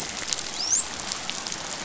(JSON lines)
{"label": "biophony, dolphin", "recorder": "SoundTrap 500"}